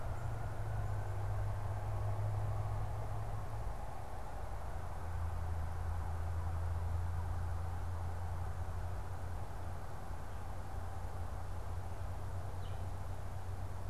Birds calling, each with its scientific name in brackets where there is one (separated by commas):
Red-eyed Vireo (Vireo olivaceus)